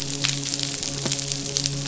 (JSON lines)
{"label": "biophony, midshipman", "recorder": "SoundTrap 500"}